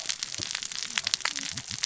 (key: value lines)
label: biophony, cascading saw
recorder: SoundTrap 600 or HydroMoth